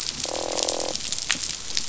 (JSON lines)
{"label": "biophony, croak", "recorder": "SoundTrap 500"}